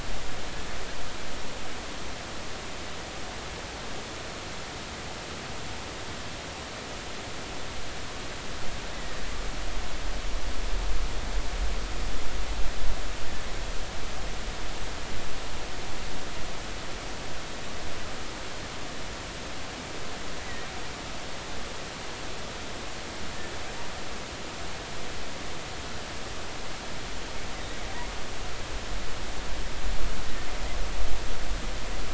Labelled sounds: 8.9	9.2	killer whale, offshore, 1.7 to 2.0 kHz
20.4	20.7	killer whale, offshore, 1.8 to 2.1 kHz

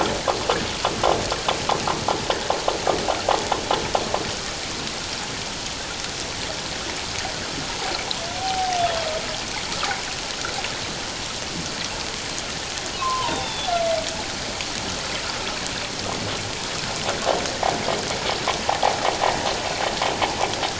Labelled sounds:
8.4	9.1	humpback whale, 0.78 to 3.5 kHz
13.0	13.7	humpback whale, 0.88 to 3.8 kHz

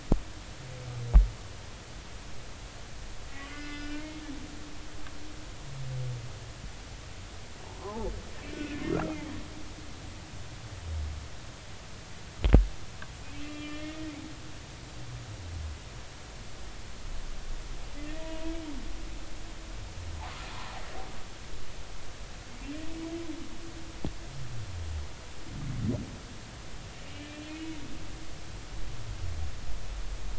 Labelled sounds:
3.5	4.0	humpback whale, 1.4 to 5.1 kHz
5.0	5.2	humpback whale, 2.0 to 2.2 kHz
7.7	8.1	humpback whale, 0.80 to 1.2 kHz
8.7	9.0	humpback whale, 2.0 to 2.2 kHz
13.4	14.1	humpback whale, 1.2 to 2.7 kHz
18.2	18.6	humpback whale, 0.93 to 3.3 kHz
27.0	27.8	humpback whale, 2.1 to 3.0 kHz

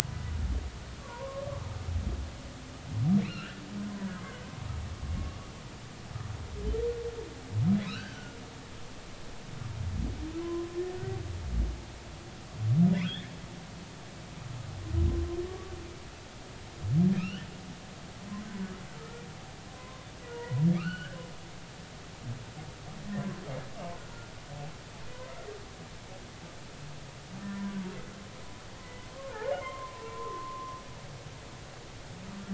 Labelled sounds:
2.0	4.1	humpback whale, 0.90 to 4.3 kHz
7.8	8.4	humpback whale, 1.2 to 3.2 kHz
10.4	10.7	humpback whale, 0.96 to 1.1 kHz
13.0	13.3	humpback whale, 1.2 to 2.0 kHz
15.5	15.7	humpback whale, 1.1 to 1.2 kHz
17.2	17.5	humpback whale, 2.2 to 3.3 kHz
19.7	21.2	humpback whale, 0.90 to 4.6 kHz
27.4	27.7	humpback whale, 1.7 to 1.9 kHz
28.8	30.7	humpback whale, 0.93 to 2.1 kHz

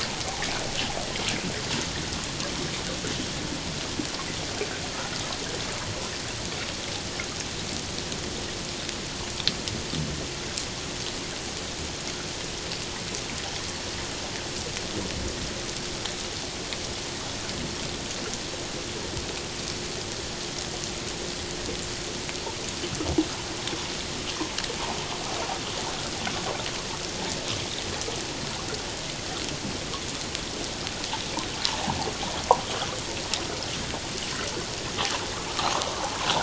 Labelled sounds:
35.6	36.4	water noise, 0.78 to 1.3 kHz

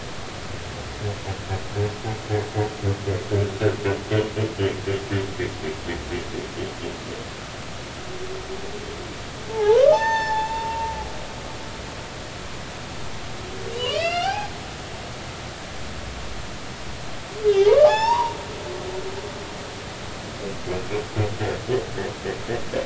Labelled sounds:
9.5	10.9	humpback whale, 0.80 to 7.2 kHz
13.7	14.5	humpback whale, 0.80 to 5.8 kHz
17.8	18.9	humpback whale, 0.80 to 5.7 kHz

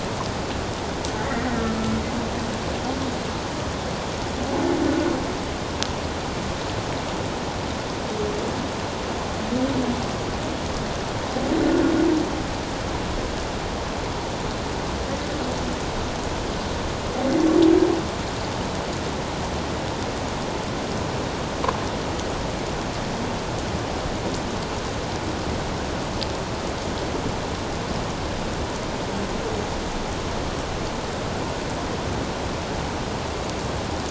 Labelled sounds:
1.4	1.8	humpback whale, 1.7 to 2.0 kHz

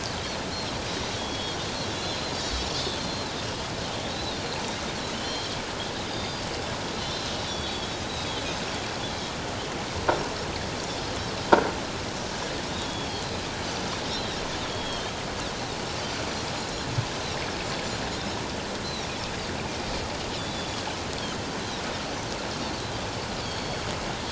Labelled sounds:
1.2	1.6	Pacific white-sided dolphin, 3.2 to 3.5 kHz
1.9	3.3	Pacific white-sided dolphin, 3.3 to 6.1 kHz
4.1	4.6	Pacific white-sided dolphin, 3.5 to 4.3 kHz
5.1	5.5	Pacific white-sided dolphin, 3.0 to 4.2 kHz
6.0	6.4	Pacific white-sided dolphin, 3.4 to 5.0 kHz
7.5	8.5	Pacific white-sided dolphin, 3.2 to 4.6 kHz
12.8	13.1	Pacific white-sided dolphin, 3.3 to 3.4 kHz
14.1	14.4	Pacific white-sided dolphin, 3.6 to 4.2 kHz
14.7	15.1	Pacific white-sided dolphin, 2.9 to 3.4 kHz
20.4	20.7	Pacific white-sided dolphin, 3.4 to 3.6 kHz
23.4	23.8	Pacific white-sided dolphin, 3.1 to 4.5 kHz

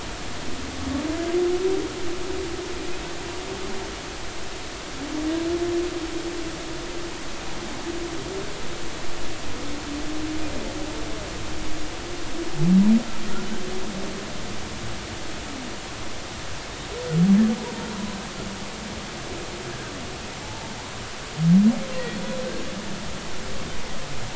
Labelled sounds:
22.1	22.4	humpback whale, 3.3 to 3.5 kHz

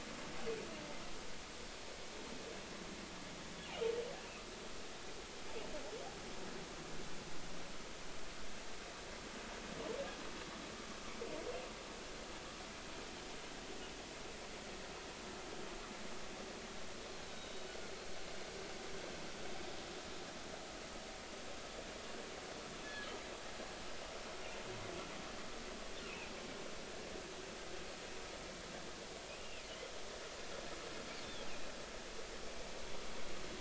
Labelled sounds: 17.3	17.7	humpback whale, 3.7 to 3.8 kHz
22.8	23.1	humpback whale, 1.6 to 1.8 kHz
29.4	29.6	humpback whale, 2.4 to 2.9 kHz

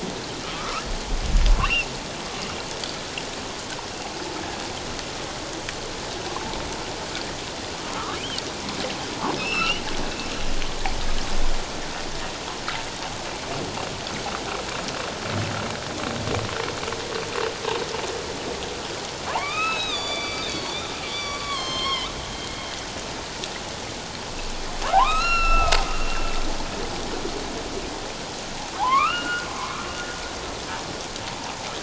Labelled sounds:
0.5	0.8	humpback whale, 0.97 to 1.4 kHz
1.6	1.9	humpback whale, 2.5 to 3.1 kHz
7.9	8.4	humpback whale, 0.97 to 3.3 kHz
9.4	9.8	humpback whale, 2.5 to 3.0 kHz
19.3	22.1	humpback whale, 0.78 to 7.5 kHz
24.9	26.2	humpback whale, 0.78 to 6.9 kHz
28.7	29.5	humpback whale, 0.78 to 3.0 kHz

